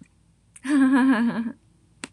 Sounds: Laughter